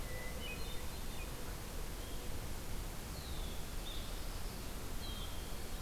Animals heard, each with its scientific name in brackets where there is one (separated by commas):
Red-winged Blackbird (Agelaius phoeniceus), Blue-headed Vireo (Vireo solitarius), Hermit Thrush (Catharus guttatus)